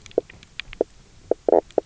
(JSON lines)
{"label": "biophony, knock croak", "recorder": "SoundTrap 300"}